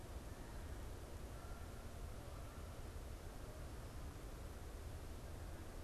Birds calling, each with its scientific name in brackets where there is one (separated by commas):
Canada Goose (Branta canadensis)